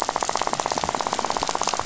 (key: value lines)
label: biophony, rattle
recorder: SoundTrap 500